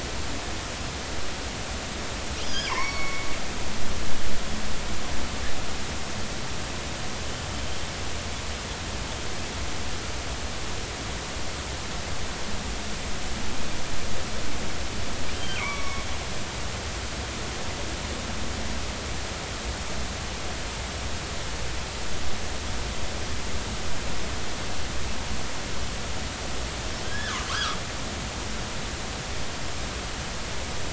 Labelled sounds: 2.4	3.3	killer whale, northern resident, G clan, call N23i, 0.86 to 5.8 kHz
15.3	16.1	killer whale, northern resident, G clan, call N23i, 0.93 to 5.7 kHz
27.0	27.8	killer whale, northern resident, G clan, 1.0 to 1.8 kHz

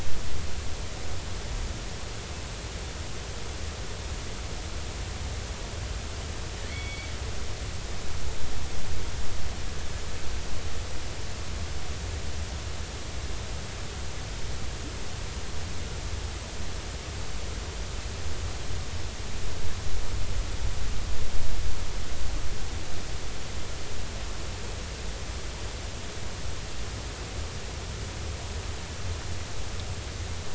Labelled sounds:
6.7	7.1	killer whale, northern resident, G clan, call N23i, 2.0 to 3.5 kHz

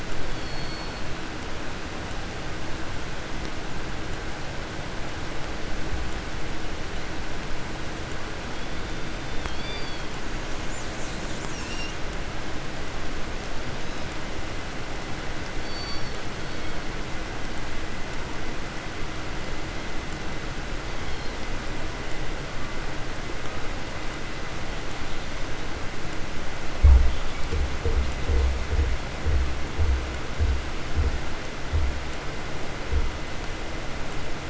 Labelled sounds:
0.0	1.4	killer whale, southern resident, call S16, 1.8 to 4.9 kHz
8.3	10.3	killer whale, 1.5 to 5.2 kHz
10.4	12.2	killer whale, southern resident, 2.2 to 8.0 kHz
13.6	14.2	killer whale, 1.4 to 8.0 kHz
15.5	16.3	killer whale, southern resident, call S16, 1.6 to 5.9 kHz
16.3	17.0	killer whale, southern resident, 1.6 to 4.7 kHz
20.6	21.6	killer whale, 1.1 to 5.9 kHz
26.7	33.5	abiotic sound, 0 to 1.1 kHz

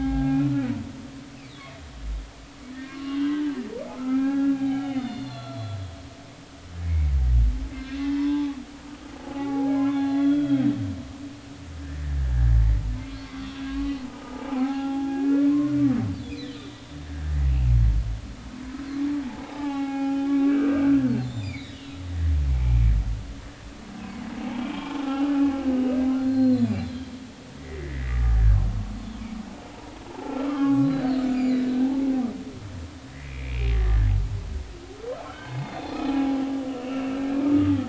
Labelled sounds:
0.2	0.7	humpback whale, 1.3 to 2.6 kHz
2.7	5.8	humpback whale, 0.80 to 4.4 kHz
6.9	7.1	humpback whale, 2.1 to 2.3 kHz
7.7	8.6	humpback whale, 0.80 to 4.4 kHz
9.2	10.7	humpback whale, 0.80 to 3.5 kHz
13.7	14.0	humpback whale, 1.0 to 1.2 kHz
14.5	15.5	humpback whale, 0.80 to 2.6 kHz
19.2	22.8	humpback whale, 0.80 to 7.4 kHz
24.0	24.2	humpback whale, 0.93 to 1.1 kHz
24.8	25.3	humpback whale, 0.80 to 1.5 kHz
26.2	27.1	humpback whale, 1.5 to 4.4 kHz
27.6	28.6	humpback whale, 1.1 to 2.1 kHz
30.1	31.3	humpback whale, 0.80 to 4.5 kHz
31.8	32.1	humpback whale, 0.80 to 0.93 kHz
33.2	34.1	humpback whale, 1.5 to 2.5 kHz
35.3	36.4	humpback whale, 0.80 to 4.4 kHz
36.7	37.2	humpback whale, 2.5 to 2.9 kHz
37.5	37.8	humpback whale, 1.2 to 1.3 kHz

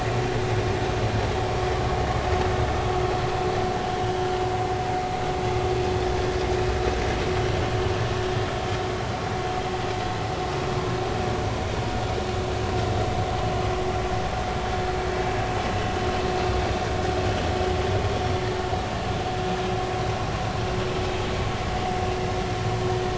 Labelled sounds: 4.0	4.3	vessel noise, 2.9 to 3.1 kHz

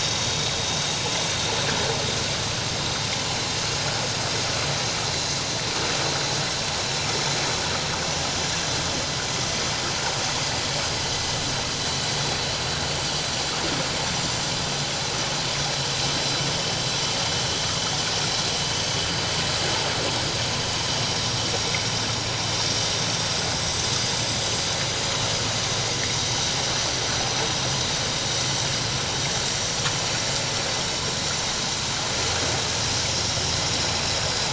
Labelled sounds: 1.1	1.7	vessel noise, 4.0 to 4.3 kHz

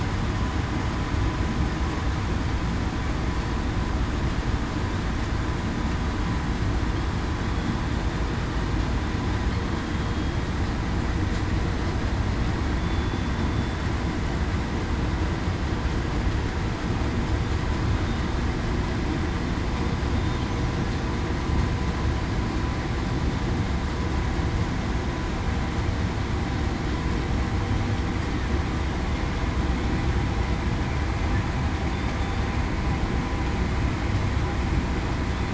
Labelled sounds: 12.8	13.2	killer whale, southern resident, 3.4 to 3.5 kHz

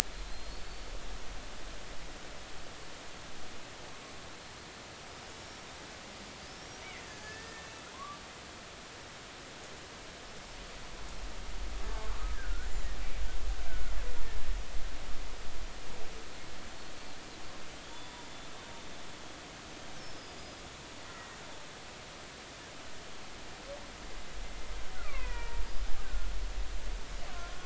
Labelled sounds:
0.2	0.8	killer whale, Bigg's (transient), 4.0 to 4.6 kHz
5.4	5.6	killer whale, Bigg's (transient), 5.4 to 5.7 kHz
6.4	7.7	killer whale, Bigg's (transient), 1.6 to 5.8 kHz
7.9	8.2	killer whale, Bigg's (transient), 0.99 to 1.2 kHz
12.3	12.7	killer whale, Bigg's (transient), 1.3 to 1.8 kHz
13.7	14.0	killer whale, Bigg's (transient), 1.3 to 1.6 kHz
17.9	18.2	killer whale, Bigg's (transient), 0.90 to 3.6 kHz
20.0	21.4	killer whale, Bigg's (transient), 1.8 to 5.5 kHz
24.9	26.3	killer whale, Bigg's (transient), 0.90 to 2.8 kHz

